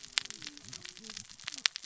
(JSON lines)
{"label": "biophony, cascading saw", "recorder": "SoundTrap 600 or HydroMoth"}